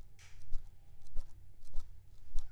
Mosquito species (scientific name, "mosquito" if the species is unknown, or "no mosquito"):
Aedes aegypti